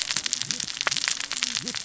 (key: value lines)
label: biophony, cascading saw
recorder: SoundTrap 600 or HydroMoth